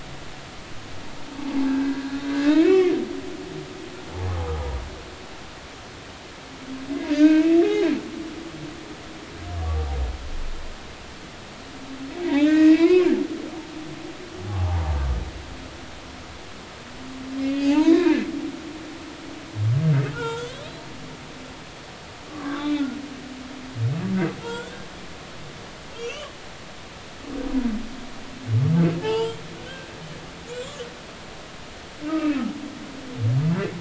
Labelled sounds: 1.6	2.0	humpback whale, 1.5 to 1.7 kHz
2.3	2.9	humpback whale, 1.6 to 2.4 kHz
7.1	7.9	humpback whale, 0.80 to 3.8 kHz
12.3	13.1	humpback whale, 0.96 to 5.3 kHz
15.5	16.0	humpback whale, 0.80 to 0.99 kHz
17.4	18.2	humpback whale, 0.80 to 3.8 kHz
20.1	20.5	humpback whale, 0.86 to 3.6 kHz
22.3	22.9	humpback whale, 1.0 to 3.9 kHz
24.4	24.8	humpback whale, 1.3 to 3.6 kHz
25.9	26.3	humpback whale, 2.5 to 3.1 kHz
29.0	29.9	humpback whale, 0.80 to 1.7 kHz
30.5	30.8	humpback whale, 3.2 to 3.6 kHz
31.5	32.4	humpback whale, 1.2 to 7.6 kHz

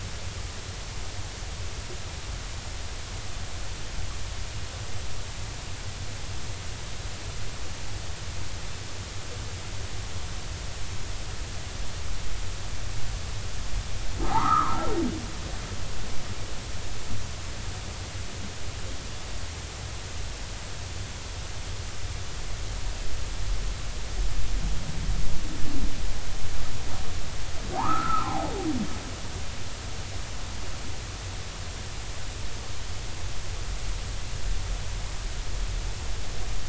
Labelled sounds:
14.2	14.9	humpback whale, 0.80 to 1.4 kHz
27.7	28.5	humpback whale, 0.80 to 1.5 kHz

